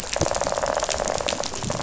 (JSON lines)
{"label": "biophony, rattle", "recorder": "SoundTrap 500"}